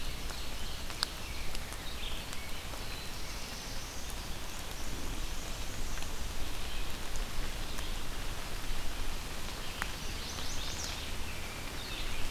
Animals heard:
American Robin (Turdus migratorius)
Chestnut-sided Warbler (Setophaga pensylvanica)
Red-eyed Vireo (Vireo olivaceus)
Black-and-white Warbler (Mniotilta varia)
Black-throated Blue Warbler (Setophaga caerulescens)
Ovenbird (Seiurus aurocapilla)

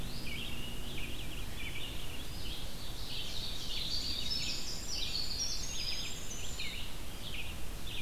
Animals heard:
Winter Wren (Troglodytes hiemalis)
Red-eyed Vireo (Vireo olivaceus)
Eastern Wood-Pewee (Contopus virens)
Ovenbird (Seiurus aurocapilla)

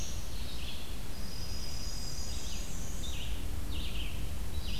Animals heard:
Dark-eyed Junco (Junco hyemalis)
Black-and-white Warbler (Mniotilta varia)
Red-eyed Vireo (Vireo olivaceus)

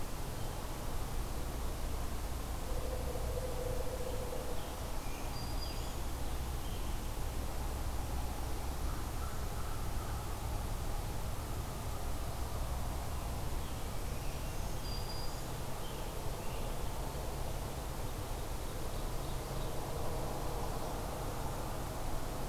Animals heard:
Black-throated Green Warbler (Setophaga virens)
Ovenbird (Seiurus aurocapilla)
Scarlet Tanager (Piranga olivacea)

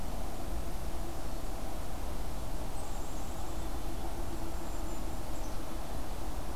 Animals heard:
Black-capped Chickadee (Poecile atricapillus)

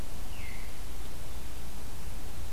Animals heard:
Veery (Catharus fuscescens)

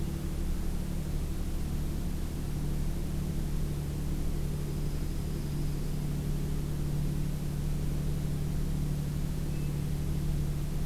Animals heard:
Hermit Thrush (Catharus guttatus)
Dark-eyed Junco (Junco hyemalis)

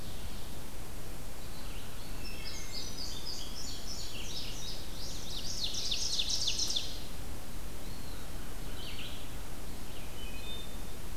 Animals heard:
Eastern Wood-Pewee (Contopus virens)
Indigo Bunting (Passerina cyanea)
Red-eyed Vireo (Vireo olivaceus)
Wood Thrush (Hylocichla mustelina)
Ovenbird (Seiurus aurocapilla)

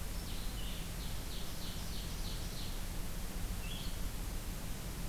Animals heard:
Ovenbird (Seiurus aurocapilla)
Blue-headed Vireo (Vireo solitarius)

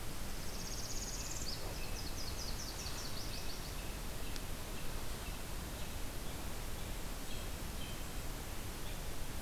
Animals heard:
American Robin (Turdus migratorius)
Nashville Warbler (Leiothlypis ruficapilla)
Northern Parula (Setophaga americana)

